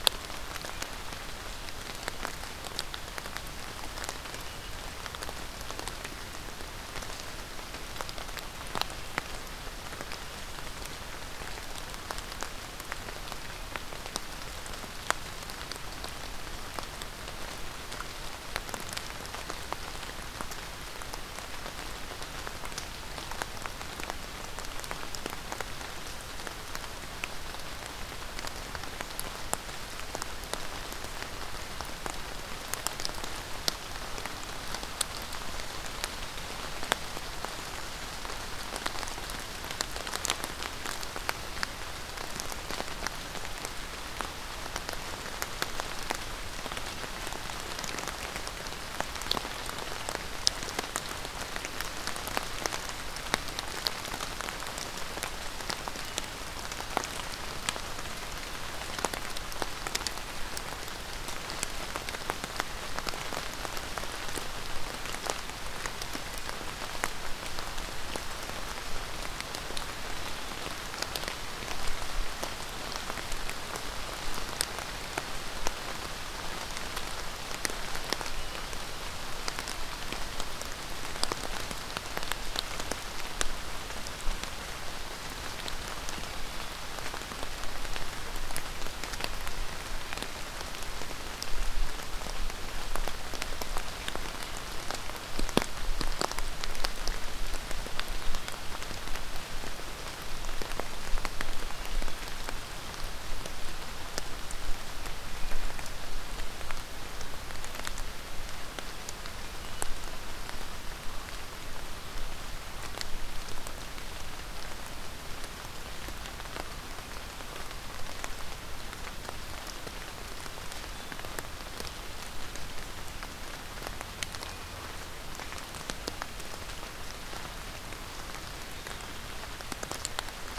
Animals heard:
forest ambience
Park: Marsh-Billings-Rockefeller National Historical Park